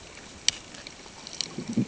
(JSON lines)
{"label": "ambient", "recorder": "HydroMoth"}